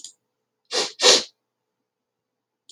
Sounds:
Sniff